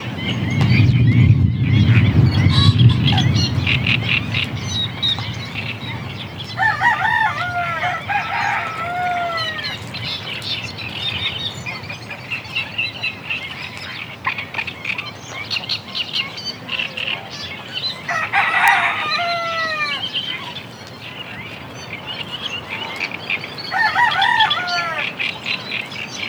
Are the animals inside?
no